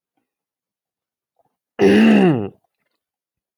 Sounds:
Throat clearing